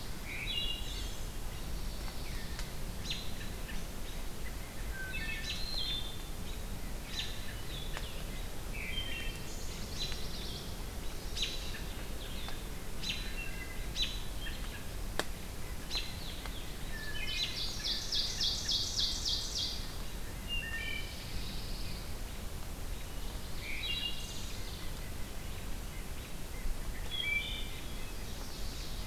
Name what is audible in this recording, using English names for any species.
Wood Thrush, Chestnut-sided Warbler, American Robin, Blue-headed Vireo, Pine Warbler, Ovenbird, White-breasted Nuthatch